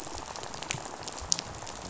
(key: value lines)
label: biophony, rattle
recorder: SoundTrap 500